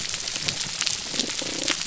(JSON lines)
{"label": "biophony, damselfish", "recorder": "SoundTrap 300"}